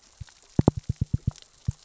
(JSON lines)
{"label": "biophony, knock", "recorder": "SoundTrap 600 or HydroMoth"}